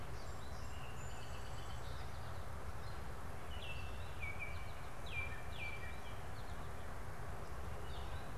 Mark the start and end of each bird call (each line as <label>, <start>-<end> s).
Song Sparrow (Melospiza melodia), 0.1-2.7 s
Baltimore Oriole (Icterus galbula), 3.3-6.3 s